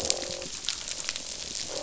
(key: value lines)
label: biophony, croak
recorder: SoundTrap 500